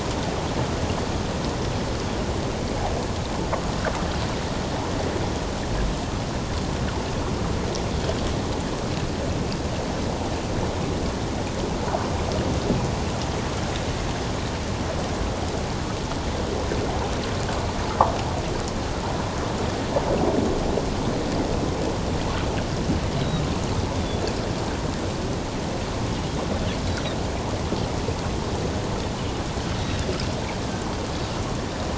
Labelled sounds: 29.8	30.1	Pacific white-sided dolphin, 3.4 to 3.9 kHz

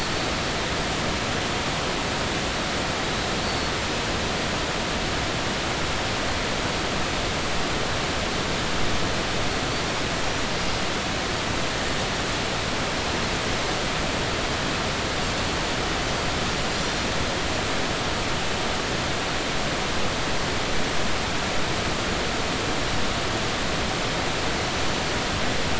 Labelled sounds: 3.4	3.7	Pacific white-sided dolphin, 4.4 to 4.5 kHz

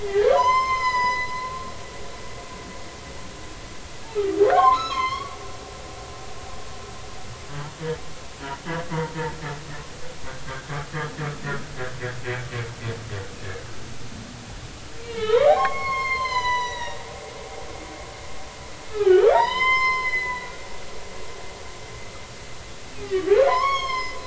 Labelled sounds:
0.0	1.3	humpback whale, 0.80 to 7.3 kHz
4.5	5.4	humpback whale, 0.96 to 6.4 kHz
8.9	9.2	humpback whale, 0.86 to 1.0 kHz
15.0	17.0	humpback whale, 0.80 to 6.5 kHz
18.9	20.5	humpback whale, 0.80 to 5.2 kHz
23.5	24.2	humpback whale, 0.90 to 6.7 kHz

